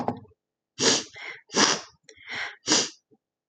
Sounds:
Sniff